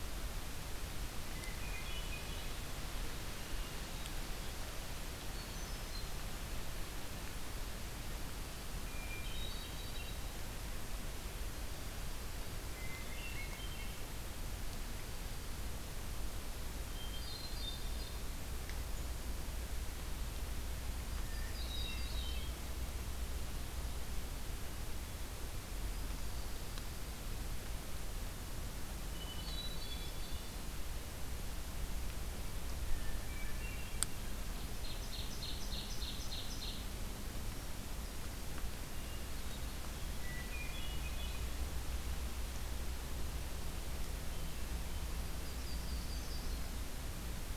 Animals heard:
Ovenbird (Seiurus aurocapilla), Yellow-rumped Warbler (Setophaga coronata), Hermit Thrush (Catharus guttatus)

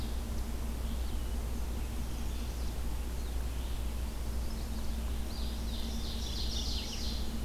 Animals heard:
Red-eyed Vireo (Vireo olivaceus), Mourning Warbler (Geothlypis philadelphia), Eastern Wood-Pewee (Contopus virens), Chestnut-sided Warbler (Setophaga pensylvanica), Ovenbird (Seiurus aurocapilla)

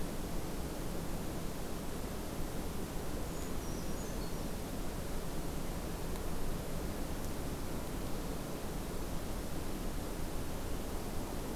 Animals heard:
Brown Creeper (Certhia americana)

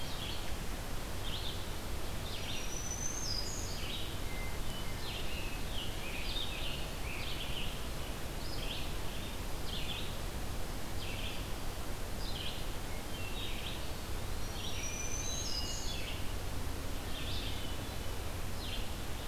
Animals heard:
Hermit Thrush (Catharus guttatus), Red-eyed Vireo (Vireo olivaceus), Eastern Wood-Pewee (Contopus virens), Black-throated Green Warbler (Setophaga virens), Scarlet Tanager (Piranga olivacea)

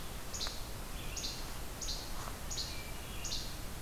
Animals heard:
Least Flycatcher (Empidonax minimus), Hermit Thrush (Catharus guttatus)

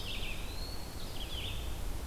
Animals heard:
Eastern Wood-Pewee (Contopus virens), Red-eyed Vireo (Vireo olivaceus)

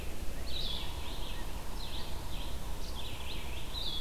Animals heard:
Yellow-bellied Sapsucker (Sphyrapicus varius), Red-eyed Vireo (Vireo olivaceus)

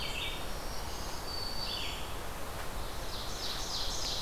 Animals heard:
Black-throated Green Warbler (Setophaga virens), Red-eyed Vireo (Vireo olivaceus), Ovenbird (Seiurus aurocapilla)

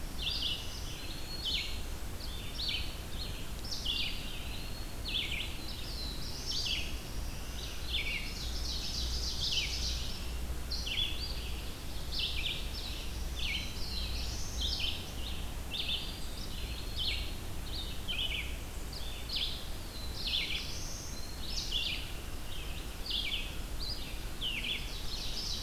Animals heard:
Black-throated Green Warbler (Setophaga virens), Eastern Wood-Pewee (Contopus virens), Red-eyed Vireo (Vireo olivaceus), Ovenbird (Seiurus aurocapilla), Black-throated Blue Warbler (Setophaga caerulescens)

